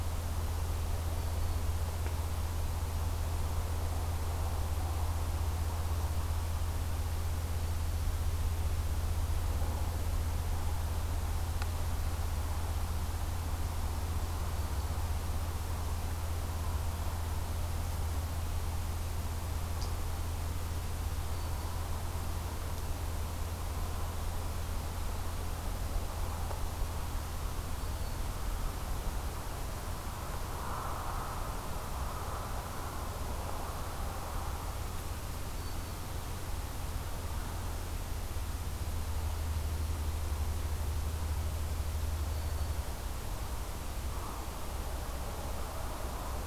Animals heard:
Black-throated Green Warbler (Setophaga virens)

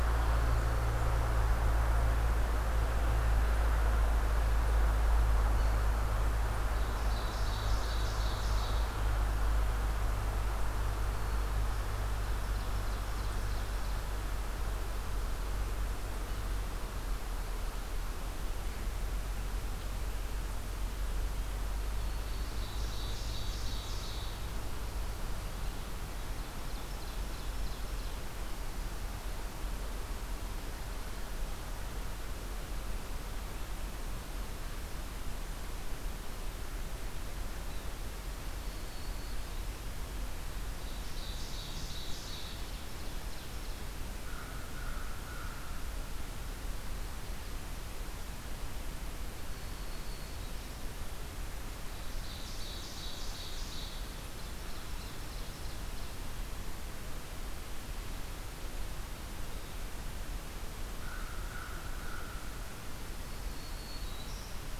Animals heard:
American Crow (Corvus brachyrhynchos)
Yellow-bellied Sapsucker (Sphyrapicus varius)
Black-throated Green Warbler (Setophaga virens)
Ovenbird (Seiurus aurocapilla)

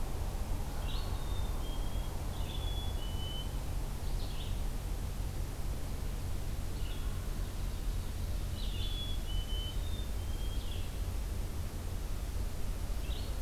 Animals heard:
Wild Turkey (Meleagris gallopavo)
Red-eyed Vireo (Vireo olivaceus)
Black-capped Chickadee (Poecile atricapillus)
Ovenbird (Seiurus aurocapilla)

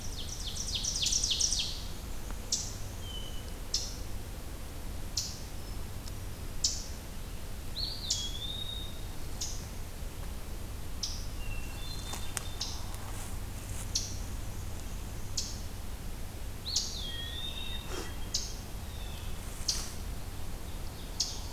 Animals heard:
Eastern Chipmunk (Tamias striatus)
Eastern Wood-Pewee (Contopus virens)
Hermit Thrush (Catharus guttatus)
Black-and-white Warbler (Mniotilta varia)
Ovenbird (Seiurus aurocapilla)

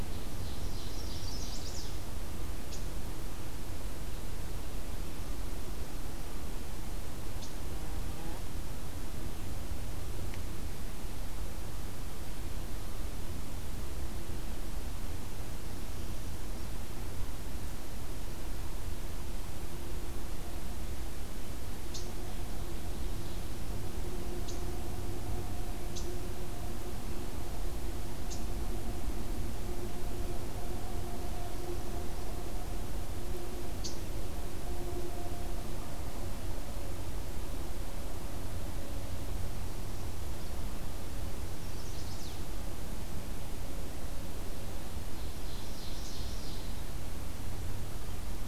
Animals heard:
Chestnut-sided Warbler (Setophaga pensylvanica)
Ovenbird (Seiurus aurocapilla)
Red Squirrel (Tamiasciurus hudsonicus)

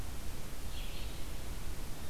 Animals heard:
Blue Jay (Cyanocitta cristata)
Red-eyed Vireo (Vireo olivaceus)

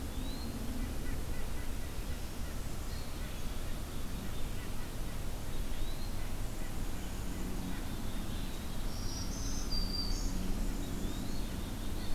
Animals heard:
White-breasted Nuthatch (Sitta carolinensis)
Eastern Wood-Pewee (Contopus virens)
Black-capped Chickadee (Poecile atricapillus)
Black-throated Green Warbler (Setophaga virens)

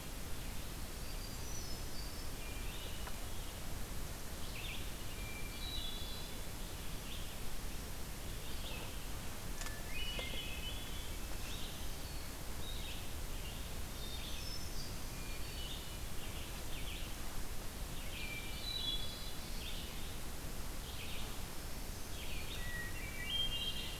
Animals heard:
Hermit Thrush (Catharus guttatus)
Red-eyed Vireo (Vireo olivaceus)

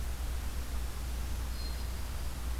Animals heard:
Black-throated Green Warbler (Setophaga virens)

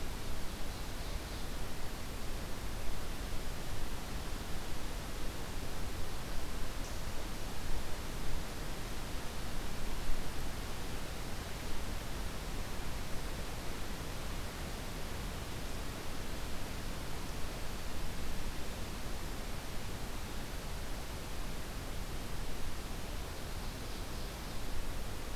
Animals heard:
Ovenbird (Seiurus aurocapilla)

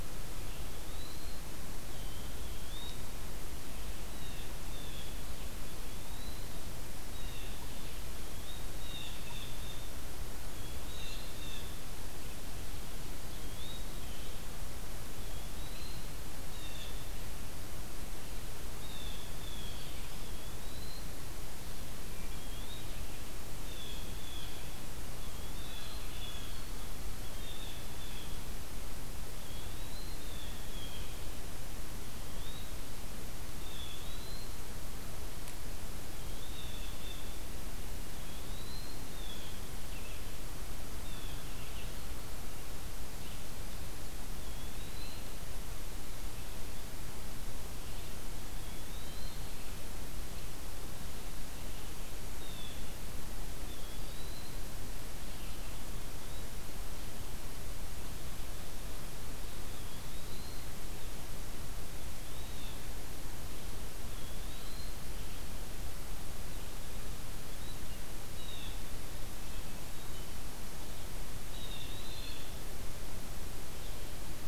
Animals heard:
Blue-headed Vireo (Vireo solitarius)
Eastern Wood-Pewee (Contopus virens)
Blue Jay (Cyanocitta cristata)

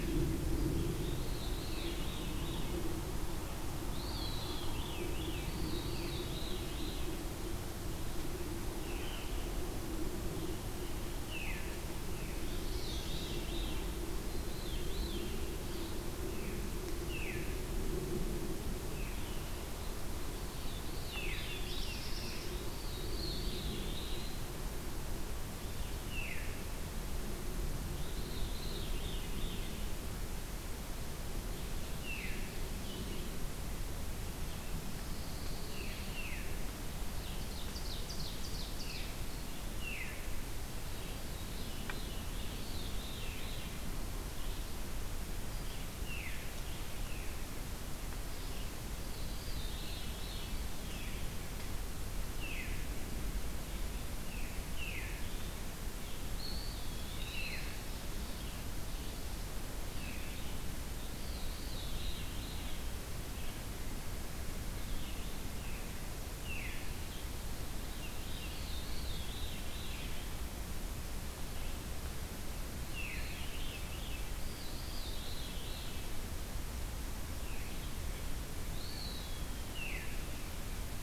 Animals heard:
Black-throated Blue Warbler (Setophaga caerulescens)
Veery (Catharus fuscescens)
Pine Warbler (Setophaga pinus)
Swainson's Thrush (Catharus ustulatus)
Ovenbird (Seiurus aurocapilla)
Eastern Wood-Pewee (Contopus virens)

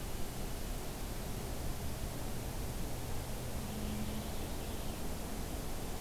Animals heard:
Purple Finch (Haemorhous purpureus)

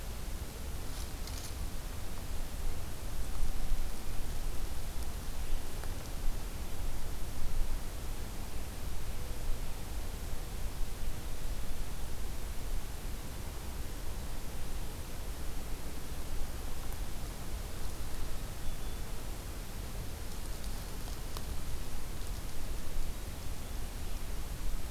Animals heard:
Black-capped Chickadee (Poecile atricapillus)

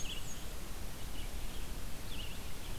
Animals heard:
Black-and-white Warbler (Mniotilta varia)
Red-eyed Vireo (Vireo olivaceus)

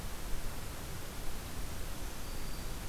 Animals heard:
Black-throated Green Warbler (Setophaga virens)

